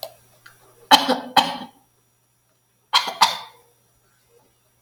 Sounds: Cough